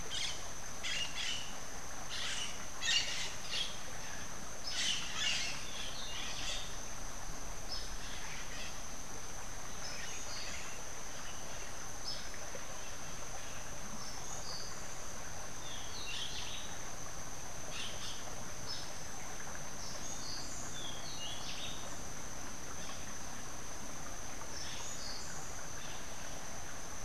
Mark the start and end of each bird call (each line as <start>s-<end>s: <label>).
0.0s-6.9s: Crimson-fronted Parakeet (Psittacara finschi)
5.6s-6.8s: Rufous-breasted Wren (Pheugopedius rutilus)
15.5s-16.8s: Rufous-breasted Wren (Pheugopedius rutilus)
20.7s-21.9s: Rufous-breasted Wren (Pheugopedius rutilus)